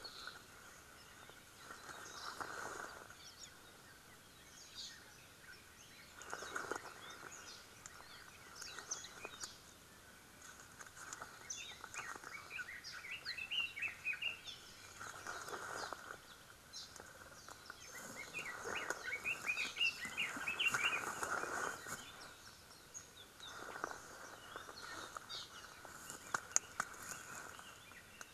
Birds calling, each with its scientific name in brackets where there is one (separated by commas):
Red-billed Leiothrix (Leiothrix lutea)